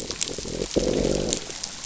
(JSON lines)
{"label": "biophony, growl", "recorder": "SoundTrap 500"}